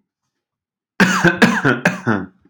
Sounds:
Cough